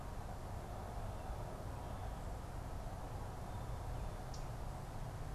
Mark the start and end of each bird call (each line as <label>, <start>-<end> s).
Common Yellowthroat (Geothlypis trichas), 4.2-4.6 s